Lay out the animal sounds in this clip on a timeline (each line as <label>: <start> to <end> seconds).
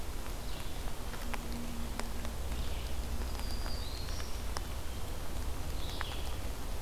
Red-eyed Vireo (Vireo olivaceus): 0.0 to 6.8 seconds
Black-throated Green Warbler (Setophaga virens): 3.0 to 4.7 seconds